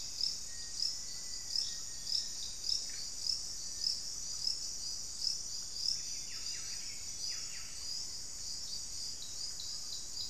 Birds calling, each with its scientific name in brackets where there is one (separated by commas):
Buff-breasted Wren (Cantorchilus leucotis), Black-faced Antthrush (Formicarius analis), Cinereous Tinamou (Crypturellus cinereus)